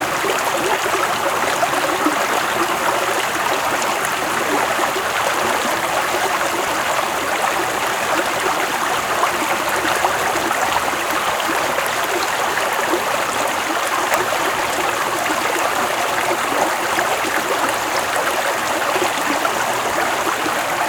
Is there bubbling?
yes